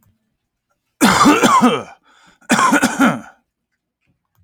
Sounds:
Cough